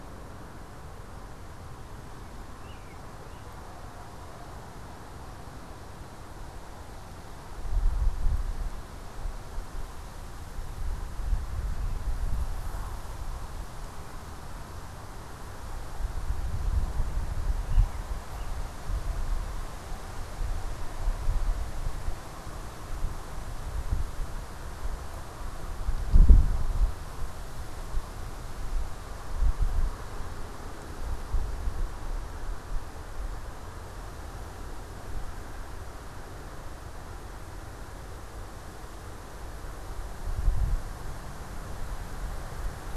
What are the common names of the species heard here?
American Robin